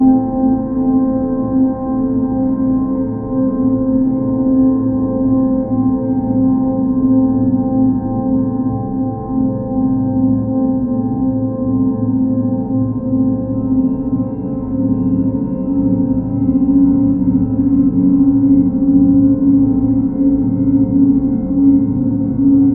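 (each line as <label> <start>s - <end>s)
Distorted piano playing a single chord. 0.0s - 22.7s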